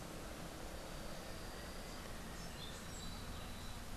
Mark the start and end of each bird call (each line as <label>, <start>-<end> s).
Little Tinamou (Crypturellus soui), 1.3-2.8 s